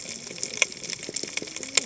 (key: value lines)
label: biophony, cascading saw
recorder: HydroMoth